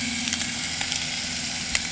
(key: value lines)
label: anthrophony, boat engine
recorder: HydroMoth